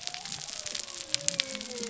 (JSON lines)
{"label": "biophony", "recorder": "SoundTrap 300"}